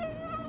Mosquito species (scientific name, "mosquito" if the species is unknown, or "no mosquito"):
Aedes aegypti